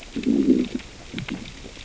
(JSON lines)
{"label": "biophony, growl", "recorder": "SoundTrap 600 or HydroMoth"}